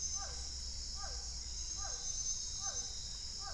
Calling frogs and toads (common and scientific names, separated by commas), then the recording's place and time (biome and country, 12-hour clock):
Physalaemus cuvieri
Cerrado, Brazil, 6:30pm